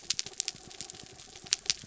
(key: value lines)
label: anthrophony, mechanical
recorder: SoundTrap 300